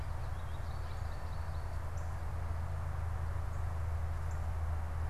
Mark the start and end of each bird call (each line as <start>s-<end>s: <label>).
0.0s-1.2s: Baltimore Oriole (Icterus galbula)
0.0s-2.2s: American Goldfinch (Spinus tristis)
0.0s-5.1s: Northern Cardinal (Cardinalis cardinalis)